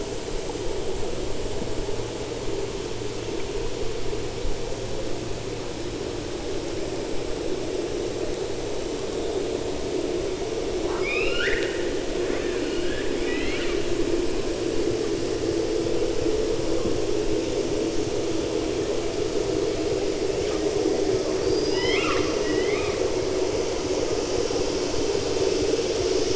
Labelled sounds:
10.8	11.9	killer whale, 0.85 to 5.5 kHz
12.2	13.8	killer whale, 1.1 to 4.9 kHz
21.4	23.0	killer whale, 0.95 to 5.2 kHz

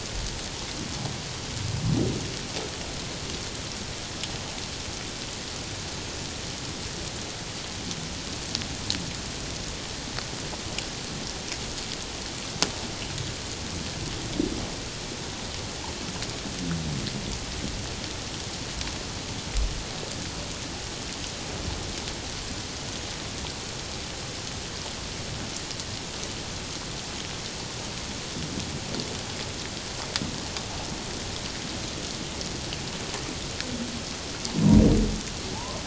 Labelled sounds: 35.5	35.8	humpback whale, 0.78 to 1.1 kHz

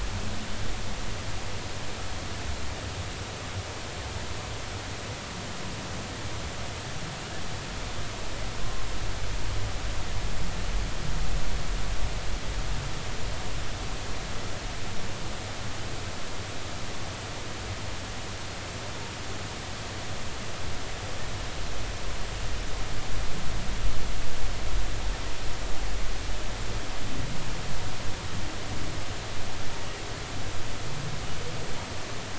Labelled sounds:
8.6	8.8	humpback whale, 1.0 to 1.1 kHz

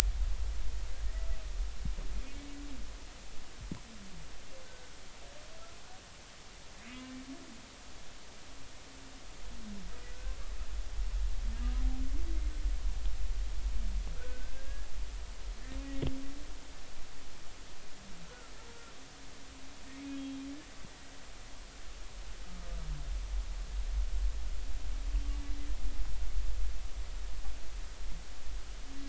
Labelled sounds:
4.6	5.0	humpback whale, 1.4 to 1.7 kHz
10.1	10.4	humpback whale, 1.4 to 1.6 kHz
14.1	14.9	humpback whale, 1.3 to 1.8 kHz
18.7	18.9	humpback whale, 1.3 to 1.4 kHz
20.1	20.4	humpback whale, 3.2 to 3.3 kHz

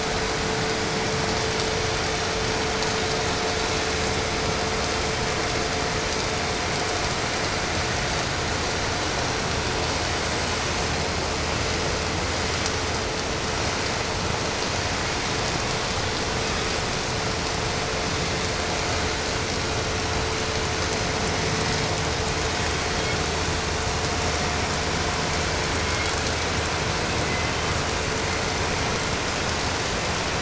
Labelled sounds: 22.6	23.3	killer whale, 1.8 to 4.7 kHz
25.3	26.2	killer whale, 1.7 to 3.7 kHz
27.1	27.8	killer whale, 1.7 to 3.3 kHz

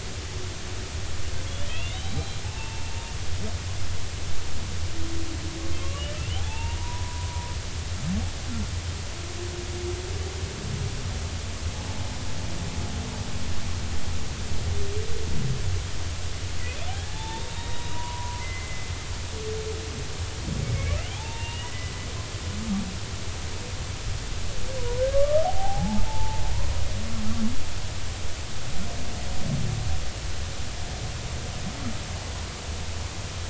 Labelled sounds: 1.7	2.9	humpback whale, 0.80 to 4.1 kHz
5.9	7.3	humpback whale, 0.80 to 3.0 kHz
16.9	18.9	humpback whale, 0.80 to 3.8 kHz
21.1	21.9	humpback whale, 0.80 to 3.0 kHz
24.8	26.4	humpback whale, 0.80 to 1.3 kHz

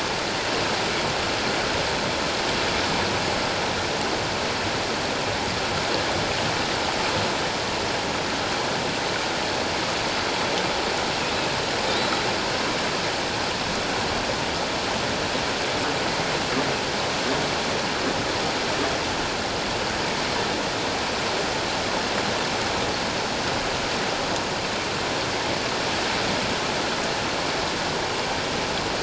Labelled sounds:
11.8	12.2	killer whale, offshore, 3.5 to 4.0 kHz

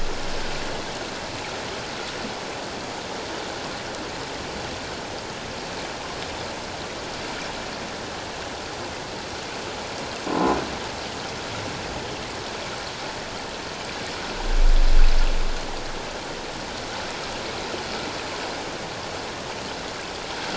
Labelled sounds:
10.2	10.6	croaking sound likely from a nearby submerged object, 0.97 to 1.1 kHz

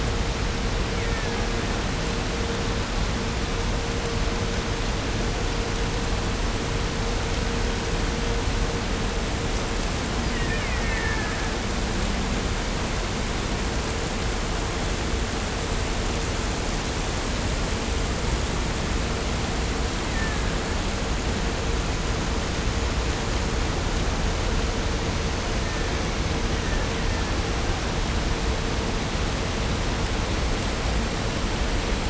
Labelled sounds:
0.8	1.8	killer whale, Bigg's (transient), 0.74 to 3.0 kHz
10.1	11.7	killer whale, Bigg's (transient), call T04, 0.94 to 5.2 kHz
19.9	20.8	killer whale, Bigg's (transient), 0.78 to 2.9 kHz
25.5	28.0	killer whale, Bigg's (transient), 0.64 to 2.7 kHz

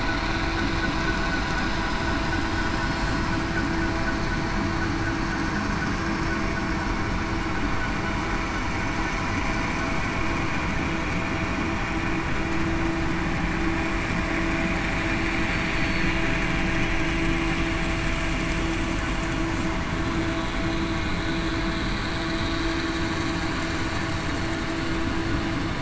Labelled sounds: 15.8	16.1	killer whale, southern resident, 4.3 to 4.5 kHz

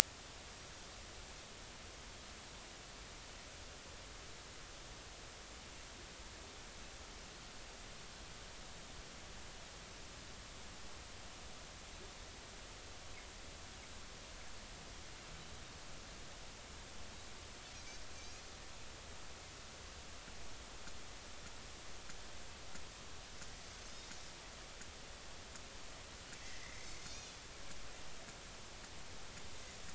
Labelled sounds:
18.2	18.4	Pacific white-sided dolphin, 6.1 to 6.7 kHz
23.9	24.2	Pacific white-sided dolphin, 3.6 to 3.8 kHz
26.4	27.3	Pacific white-sided dolphin, 1.8 to 4.4 kHz

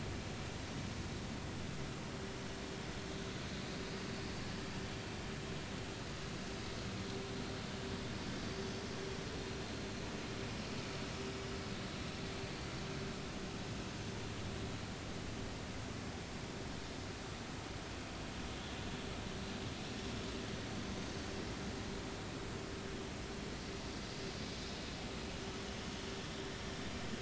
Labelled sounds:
9.3	9.6	vessel noise, 4.1 to 4.3 kHz

